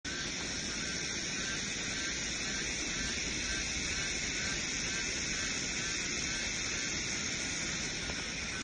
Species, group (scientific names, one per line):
Psaltoda plaga
Cicadidae